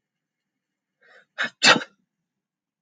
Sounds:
Sneeze